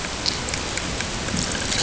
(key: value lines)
label: ambient
recorder: HydroMoth